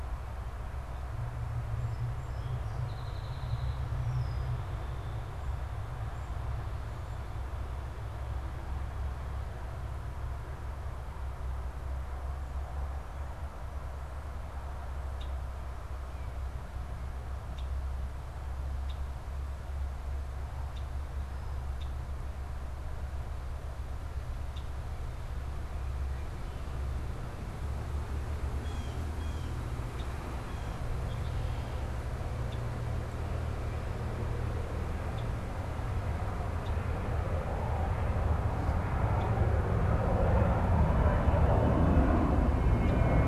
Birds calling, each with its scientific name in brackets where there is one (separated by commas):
Red-winged Blackbird (Agelaius phoeniceus), Song Sparrow (Melospiza melodia)